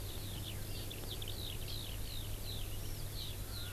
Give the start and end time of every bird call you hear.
[0.00, 3.72] Eurasian Skylark (Alauda arvensis)

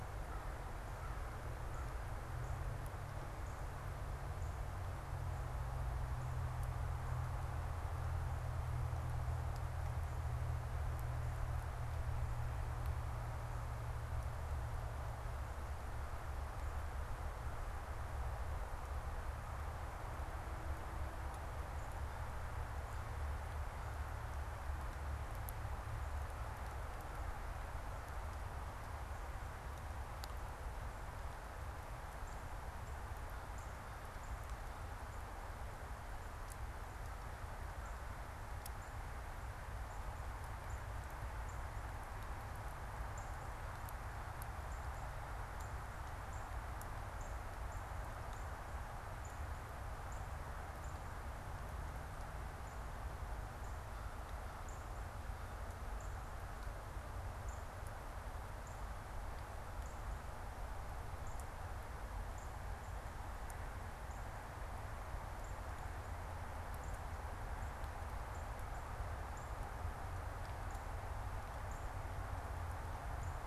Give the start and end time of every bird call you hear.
[0.00, 2.20] American Crow (Corvus brachyrhynchos)
[32.20, 46.70] Northern Cardinal (Cardinalis cardinalis)
[36.90, 38.10] American Crow (Corvus brachyrhynchos)
[47.00, 73.46] Northern Cardinal (Cardinalis cardinalis)

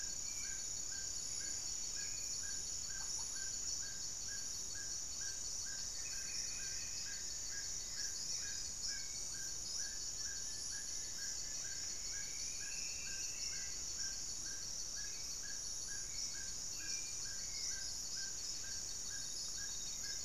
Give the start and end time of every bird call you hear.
[0.00, 0.71] Spot-winged Antshrike (Pygiptila stellaris)
[0.00, 2.51] Hauxwell's Thrush (Turdus hauxwelli)
[0.00, 7.31] Horned Screamer (Anhima cornuta)
[0.00, 20.25] Amazonian Trogon (Trogon ramonianus)
[2.71, 3.61] unidentified bird
[5.71, 8.91] Goeldi's Antbird (Akletos goeldii)
[5.81, 8.81] Black-faced Antthrush (Formicarius analis)
[7.71, 20.25] Hauxwell's Thrush (Turdus hauxwelli)
[9.91, 12.11] Plain-winged Antshrike (Thamnophilus schistaceus)
[11.01, 13.91] Striped Woodcreeper (Xiphorhynchus obsoletus)

